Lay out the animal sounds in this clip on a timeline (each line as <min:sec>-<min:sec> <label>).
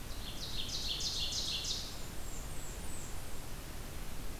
0:00.0-0:02.0 Ovenbird (Seiurus aurocapilla)
0:01.9-0:03.2 Blackburnian Warbler (Setophaga fusca)